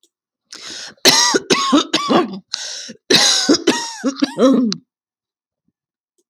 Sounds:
Cough